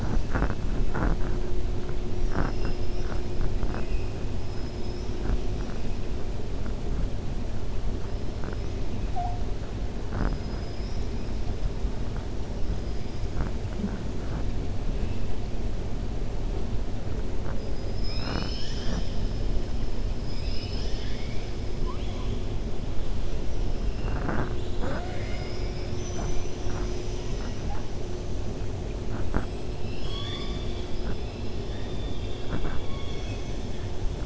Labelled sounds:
2.1	3.1	killer whale, 4.8 to 6.4 kHz
4.5	5.2	killer whale, 5.1 to 6.0 kHz
12.7	13.3	killer whale, 4.4 to 5.7 kHz
17.7	19.2	killer whale, 0.33 to 7.1 kHz
20.1	21.5	killer whale, 1.8 to 6.0 kHz
29.7	31.1	killer whale, 1.1 to 7.7 kHz

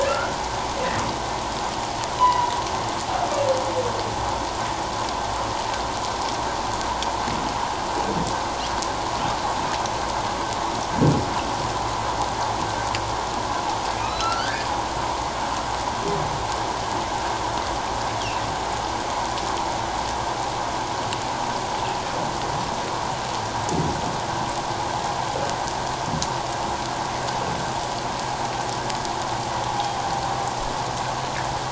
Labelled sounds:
0.1	0.4	humpback whale, 1.3 to 1.5 kHz
2.2	2.5	humpback whale, 0.84 to 1.1 kHz
14.0	14.7	humpback whale, 1.2 to 4.1 kHz

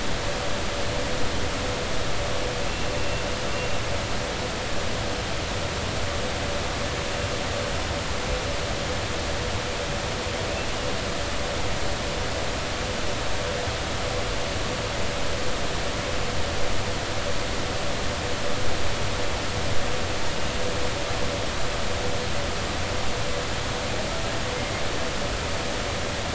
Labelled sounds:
2.7	3.2	humpback whale, 2.7 to 2.8 kHz

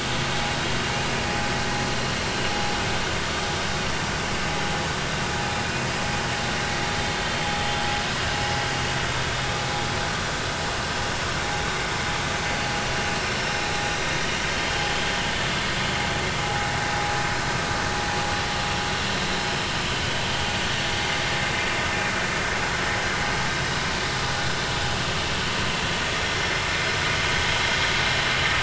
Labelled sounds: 14.5	14.7	vessel noise, 3.1 to 3.2 kHz

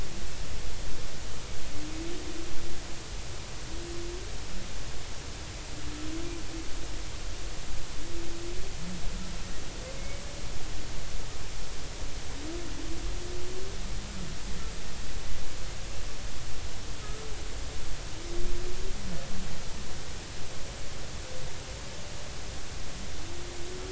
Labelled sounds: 10.0	10.2	humpback whale, 2.1 to 2.3 kHz

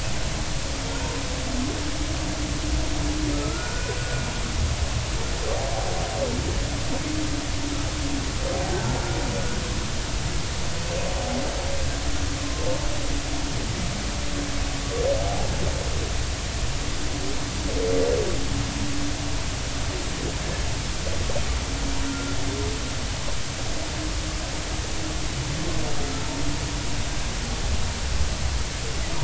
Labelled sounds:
3.3	4.2	humpback whale, 1.2 to 1.5 kHz
12.4	12.7	humpback whale, 0.99 to 1.2 kHz
15.3	15.5	humpback whale, 0.80 to 0.90 kHz
22.1	22.4	humpback whale, 1.3 to 1.4 kHz

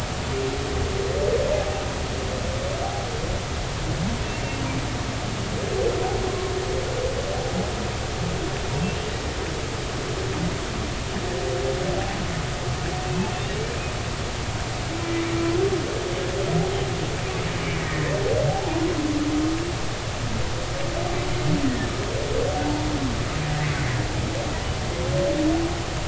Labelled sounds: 2.8	3.1	humpback whale, 0.80 to 0.86 kHz
17.6	18.8	humpback whale, 0.80 to 2.3 kHz
21.7	21.9	humpback whale, 1.7 to 2.0 kHz
22.6	22.9	humpback whale, 0.83 to 0.96 kHz

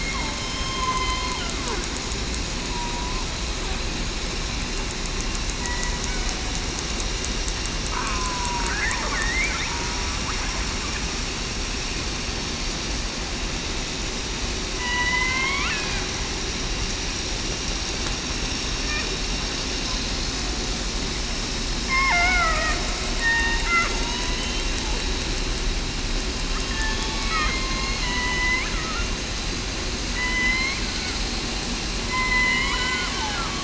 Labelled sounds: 0.3	0.9	killer whale, southern resident, 3.1 to 3.2 kHz
2.7	3.2	killer whale, southern resident, 0.91 to 1.1 kHz
8.0	8.7	killer whale, southern resident, 0.91 to 1.1 kHz
9.2	9.5	killer whale, southern resident, 1.8 to 2.4 kHz
14.7	15.7	killer whale, southern resident, 0.94 to 3.2 kHz
19.9	20.3	killer whale, southern resident, 4.0 to 4.2 kHz
21.9	22.7	killer whale, southern resident, 0.58 to 2.2 kHz
23.2	23.6	killer whale, southern resident, 0.89 to 0.96 kHz
24.0	24.4	killer whale, southern resident, 3.8 to 4.0 kHz
26.7	27.7	killer whale, southern resident, 3.2 to 4.2 kHz
28.0	29.1	killer whale, southern resident, 0.96 to 3.1 kHz
30.1	30.7	killer whale, southern resident, 0.98 to 3.3 kHz
32.1	32.6	killer whale, southern resident, 0.94 to 1.1 kHz

